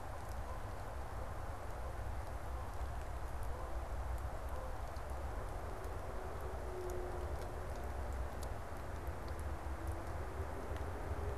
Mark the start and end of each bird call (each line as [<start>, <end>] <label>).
[0.00, 1.31] Canada Goose (Branta canadensis)